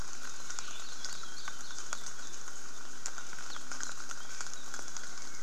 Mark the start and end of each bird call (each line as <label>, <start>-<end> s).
Hawaii Akepa (Loxops coccineus), 0.1-2.4 s
Apapane (Himatione sanguinea), 3.4-3.6 s